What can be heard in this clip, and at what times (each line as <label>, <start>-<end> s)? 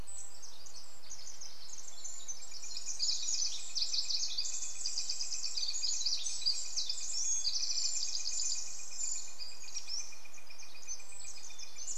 Red-breasted Nuthatch song, 0-2 s
Pacific Wren song, 0-12 s
Northern Flicker call, 2-12 s
Hermit Thrush song, 4-8 s
Hermit Thrush song, 10-12 s